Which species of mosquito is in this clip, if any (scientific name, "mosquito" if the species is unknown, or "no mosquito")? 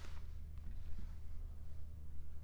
Anopheles arabiensis